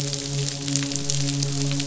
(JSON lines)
{"label": "biophony, midshipman", "recorder": "SoundTrap 500"}